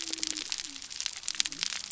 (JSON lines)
{"label": "biophony", "recorder": "SoundTrap 300"}